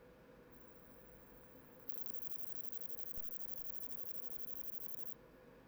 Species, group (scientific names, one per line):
Poecilimon ebneri
Orthoptera